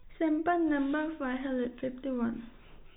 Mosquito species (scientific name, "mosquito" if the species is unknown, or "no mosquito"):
no mosquito